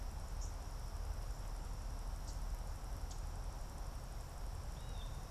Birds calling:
Blue Jay (Cyanocitta cristata)
unidentified bird

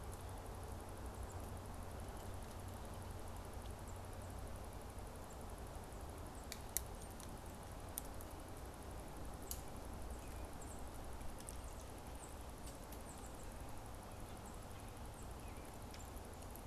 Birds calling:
Tufted Titmouse (Baeolophus bicolor)

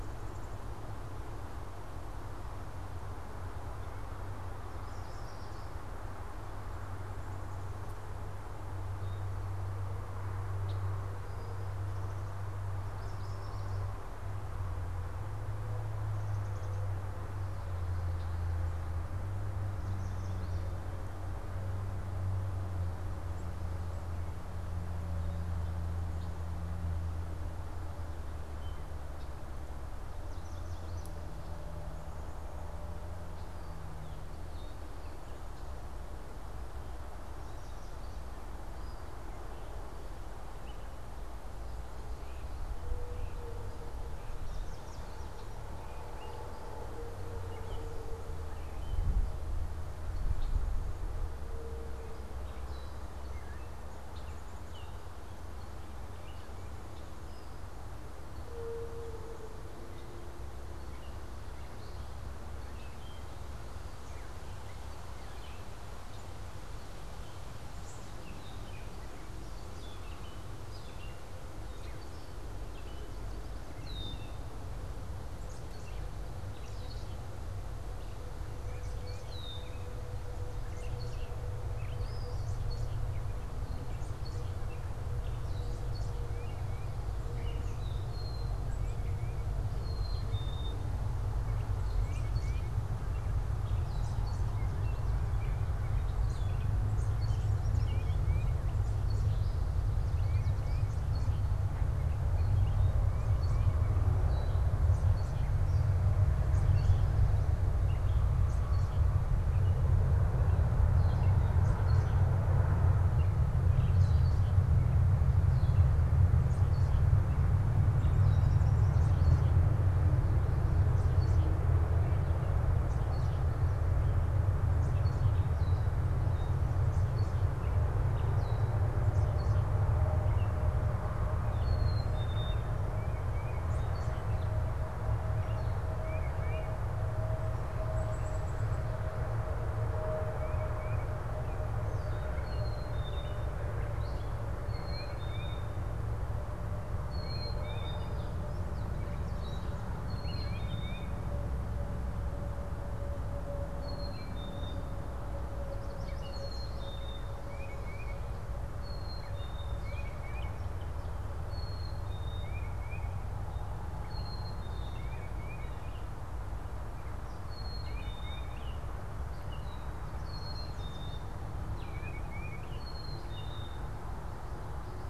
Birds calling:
Tufted Titmouse (Baeolophus bicolor)
Red-winged Blackbird (Agelaius phoeniceus)
Yellow Warbler (Setophaga petechia)
Black-capped Chickadee (Poecile atricapillus)
Gray Catbird (Dumetella carolinensis)

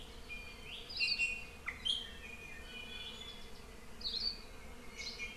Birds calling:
Hawaii Akepa (Loxops coccineus)
Iiwi (Drepanis coccinea)

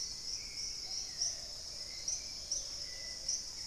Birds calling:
Dusky-capped Greenlet (Pachysylvia hypoxantha)
Plumbeous Pigeon (Patagioenas plumbea)
Hauxwell's Thrush (Turdus hauxwelli)
Dusky-throated Antshrike (Thamnomanes ardesiacus)

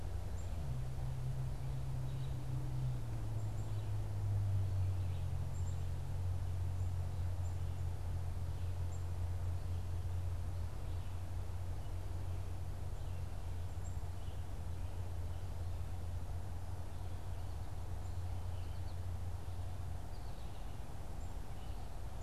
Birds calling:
Black-capped Chickadee (Poecile atricapillus)
Red-eyed Vireo (Vireo olivaceus)

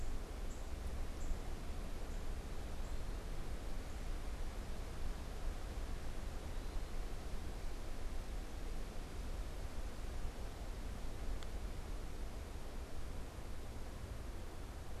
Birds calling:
Northern Cardinal (Cardinalis cardinalis)

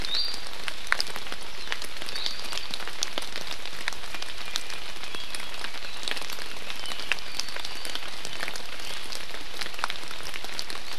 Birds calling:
Iiwi (Drepanis coccinea)

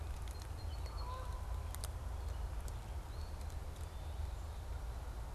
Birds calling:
Song Sparrow (Melospiza melodia)

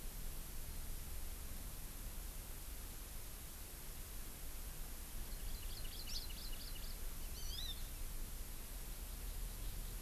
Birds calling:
Hawaii Amakihi (Chlorodrepanis virens)

